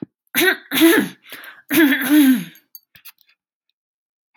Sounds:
Throat clearing